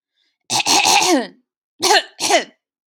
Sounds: Throat clearing